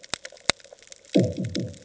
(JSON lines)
{"label": "anthrophony, bomb", "recorder": "HydroMoth"}